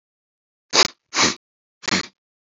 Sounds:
Sniff